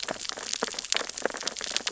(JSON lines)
{"label": "biophony, sea urchins (Echinidae)", "recorder": "SoundTrap 600 or HydroMoth"}